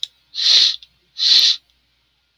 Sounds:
Sniff